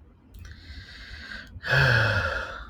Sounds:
Sigh